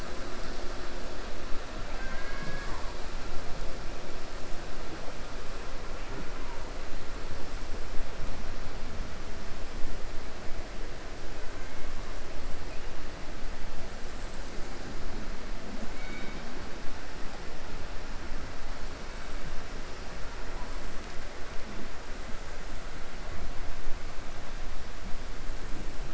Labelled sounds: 15.9	16.4	killer whale, 1.5 to 4.5 kHz

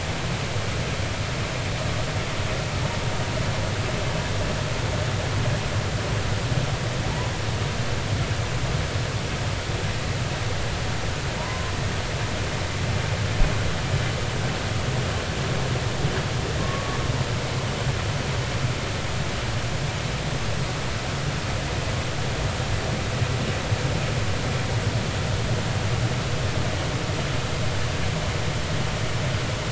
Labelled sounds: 11.4	11.7	humpback whale, 0.86 to 1.1 kHz
16.6	17.0	humpback whale, 1.0 to 1.2 kHz

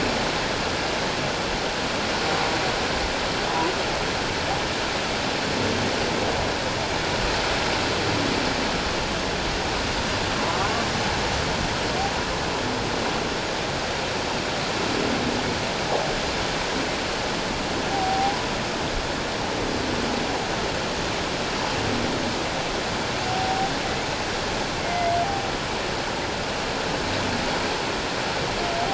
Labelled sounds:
10.6	10.8	humpback whale, 0.94 to 1.2 kHz
17.9	18.4	humpback whale, 0.78 to 0.84 kHz
23.3	23.7	humpback whale, 0.78 to 0.84 kHz
24.8	25.1	humpback whale, 2.0 to 2.2 kHz

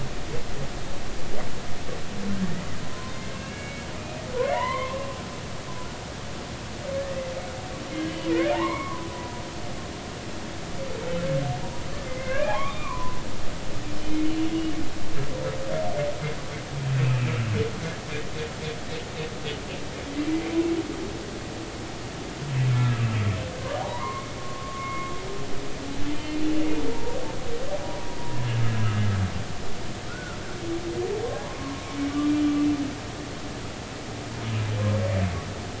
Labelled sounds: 2.8	5.0	humpback whale, 0.90 to 3.4 kHz
7.0	7.3	humpback whale, 1.6 to 2.1 kHz
8.5	9.4	humpback whale, 0.83 to 2.3 kHz
12.0	13.2	humpback whale, 0.80 to 2.5 kHz
14.3	14.5	humpback whale, 2.8 to 3.0 kHz
16.9	17.2	humpback whale, 2.4 to 2.7 kHz
22.7	25.1	humpback whale, 0.80 to 2.2 kHz
26.1	26.8	humpback whale, 2.7 to 3.1 kHz
27.9	28.6	humpback whale, 0.86 to 1.8 kHz
30.1	30.4	humpback whale, 1.3 to 1.6 kHz
32.3	32.6	humpback whale, 2.3 to 2.4 kHz

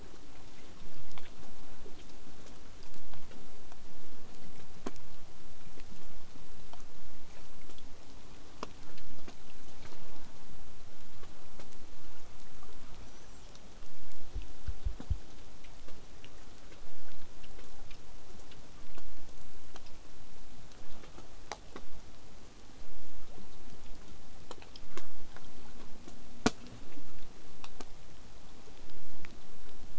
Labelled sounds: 13.0	13.5	killer whale, southern resident, whistle, 5.6 to 7.7 kHz

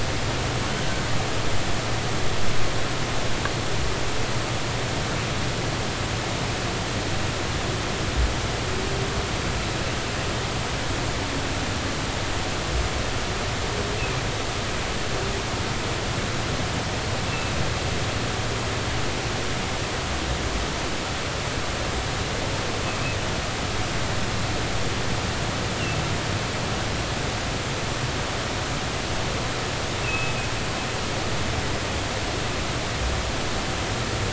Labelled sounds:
17.3	17.5	humpback whale, 2.6 to 2.7 kHz
30.0	30.3	humpback whale, 2.5 to 2.8 kHz

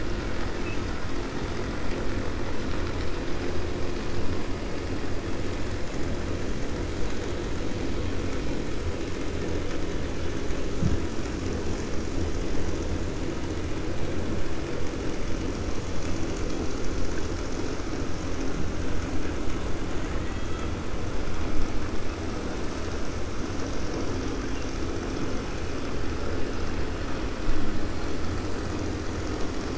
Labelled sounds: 19.9	20.7	killer whale, 1.1 to 4.0 kHz

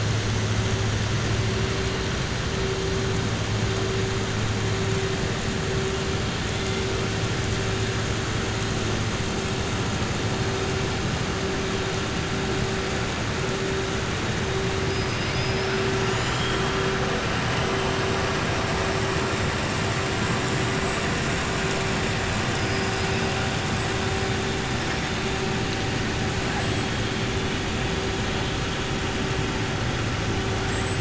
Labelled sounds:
14.9	15.7	killer whale, southern resident, 2.5 to 5.5 kHz
16.1	16.6	killer whale, southern resident, 2.2 to 4.2 kHz
20.7	21.5	killer whale, southern resident, 6.2 to 8.0 kHz

